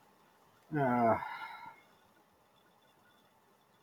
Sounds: Sigh